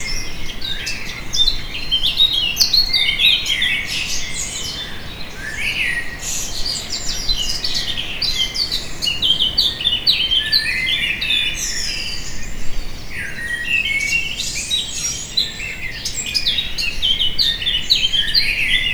Are some birds closer than others?
yes